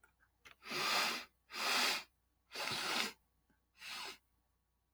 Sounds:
Sniff